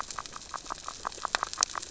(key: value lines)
label: biophony, grazing
recorder: SoundTrap 600 or HydroMoth